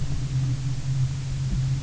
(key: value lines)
label: anthrophony, boat engine
recorder: SoundTrap 300